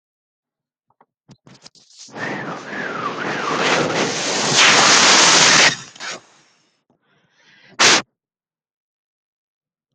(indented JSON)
{
  "expert_labels": [
    {
      "quality": "no cough present",
      "dyspnea": false,
      "wheezing": false,
      "stridor": false,
      "choking": false,
      "congestion": false,
      "nothing": false
    }
  ],
  "age": 28,
  "gender": "male",
  "respiratory_condition": true,
  "fever_muscle_pain": true,
  "status": "COVID-19"
}